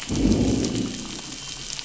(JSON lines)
{"label": "biophony, growl", "recorder": "SoundTrap 500"}